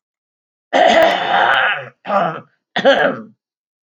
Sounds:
Throat clearing